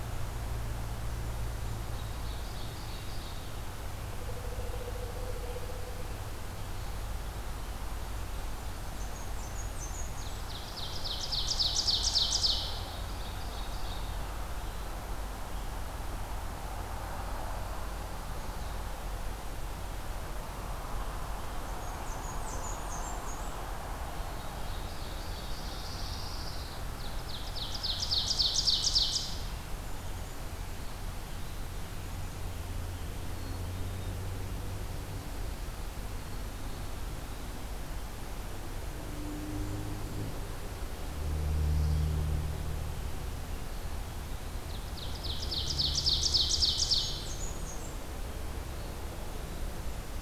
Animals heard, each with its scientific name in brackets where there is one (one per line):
Eastern Wood-Pewee (Contopus virens)
Pine Warbler (Setophaga pinus)
Ovenbird (Seiurus aurocapilla)
Blackburnian Warbler (Setophaga fusca)
Black-capped Chickadee (Poecile atricapillus)